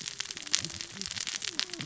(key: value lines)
label: biophony, cascading saw
recorder: SoundTrap 600 or HydroMoth